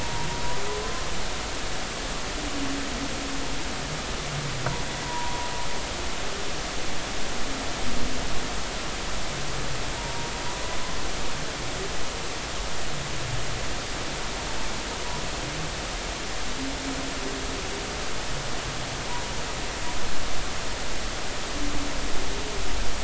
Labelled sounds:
0.0	0.3	humpback whale, 0.83 to 1.1 kHz
5.0	5.5	humpback whale, 0.86 to 1.1 kHz
10.0	10.7	humpback whale, 0.86 to 1.1 kHz

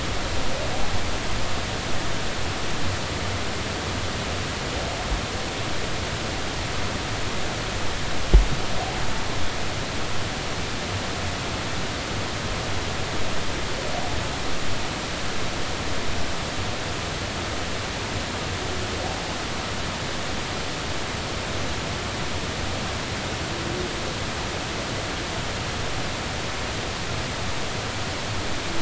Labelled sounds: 19.1	19.4	humpback whale, 0.80 to 0.93 kHz

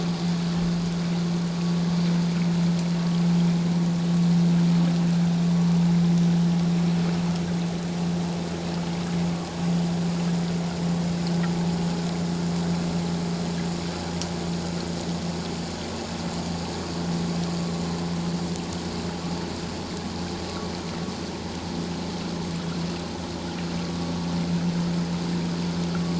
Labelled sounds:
23.8	24.1	vessel noise, 1.1 to 1.2 kHz

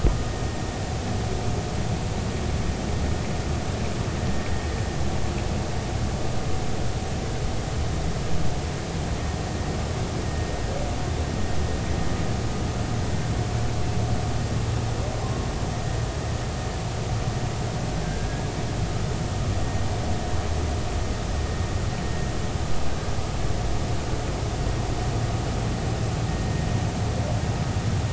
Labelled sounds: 18.0	18.4	humpback whale, 1.5 to 1.7 kHz

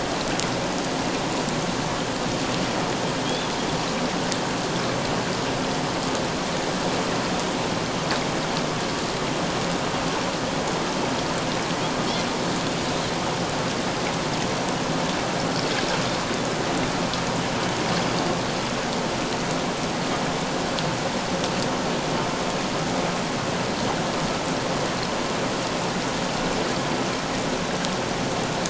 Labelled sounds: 3.2	3.5	Pacific white-sided dolphin, 3.1 to 3.6 kHz

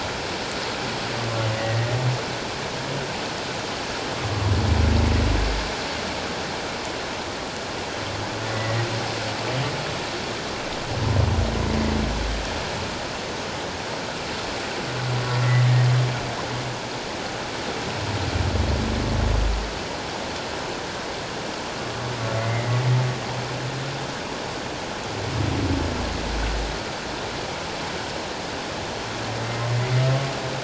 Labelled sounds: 1.6	1.9	humpback whale, 1.8 to 2.0 kHz
8.5	8.8	humpback whale, 1.8 to 2.0 kHz
22.4	22.8	humpback whale, 1.9 to 2.2 kHz

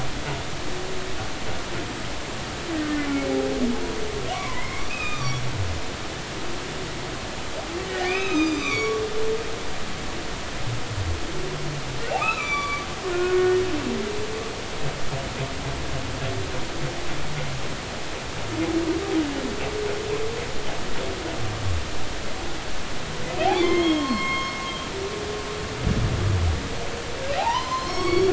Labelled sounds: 3.0	3.3	humpback whale, 2.1 to 2.4 kHz
4.3	5.4	humpback whale, 0.93 to 3.8 kHz
7.9	9.0	humpback whale, 1.2 to 7.4 kHz
12.1	13.6	humpback whale, 0.80 to 5.9 kHz
23.4	24.6	humpback whale, 0.96 to 4.4 kHz
27.4	28.3	humpback whale, 0.80 to 6.3 kHz

